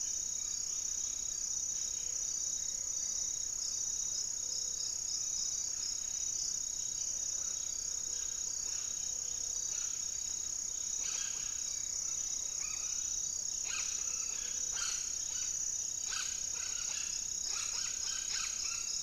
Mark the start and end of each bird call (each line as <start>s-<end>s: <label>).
0.0s-2.5s: unidentified bird
0.0s-10.7s: Buff-breasted Wren (Cantorchilus leucotis)
0.0s-19.0s: Amazonian Trogon (Trogon ramonianus)
0.0s-19.0s: Gray-fronted Dove (Leptotila rufaxilla)
10.3s-12.0s: unidentified bird